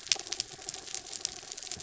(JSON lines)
{"label": "anthrophony, mechanical", "recorder": "SoundTrap 300"}